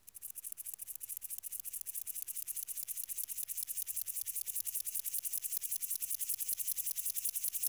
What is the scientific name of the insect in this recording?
Chorthippus apricarius